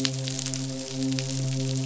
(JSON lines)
{"label": "biophony, midshipman", "recorder": "SoundTrap 500"}